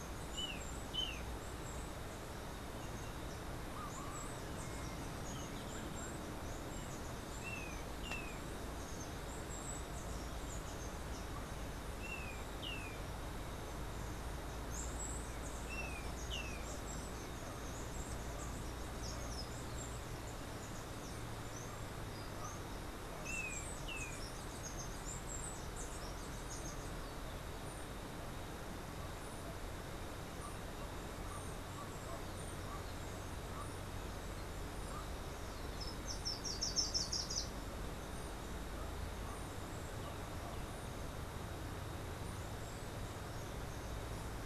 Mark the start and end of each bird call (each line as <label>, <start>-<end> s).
Golden-faced Tyrannulet (Zimmerius chrysops), 0.0-1.5 s
Steely-vented Hummingbird (Saucerottia saucerottei), 0.0-20.4 s
Golden-faced Tyrannulet (Zimmerius chrysops), 7.4-16.8 s
Steely-vented Hummingbird (Saucerottia saucerottei), 22.9-27.5 s
Golden-faced Tyrannulet (Zimmerius chrysops), 23.2-24.3 s
Slate-throated Redstart (Myioborus miniatus), 35.8-37.7 s